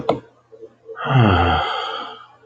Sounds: Sigh